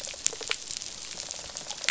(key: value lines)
label: biophony, rattle response
recorder: SoundTrap 500